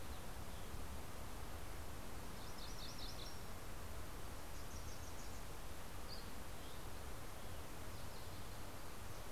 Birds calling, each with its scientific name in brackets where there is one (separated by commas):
MacGillivray's Warbler (Geothlypis tolmiei), Dusky Flycatcher (Empidonax oberholseri), Wilson's Warbler (Cardellina pusilla)